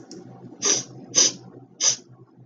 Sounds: Sniff